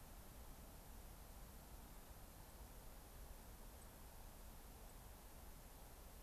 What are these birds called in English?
White-crowned Sparrow